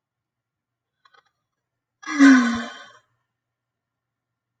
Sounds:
Sigh